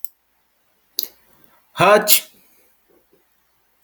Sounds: Sneeze